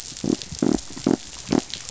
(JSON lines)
{"label": "biophony", "recorder": "SoundTrap 500"}